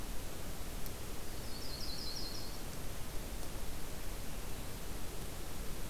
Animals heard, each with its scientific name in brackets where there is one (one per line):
Yellow-rumped Warbler (Setophaga coronata)